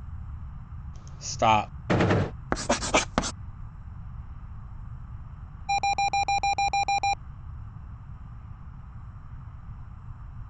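At 1.25 seconds, a voice says "Stop." Then, at 1.89 seconds, gunfire is heard. After that, at 2.5 seconds, you can hear writing. Later, at 5.68 seconds, an alarm is audible. A quiet background noise remains about 20 dB below the sounds.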